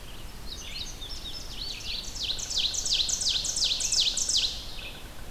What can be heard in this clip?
Red-eyed Vireo, Indigo Bunting, Ovenbird, Yellow-bellied Sapsucker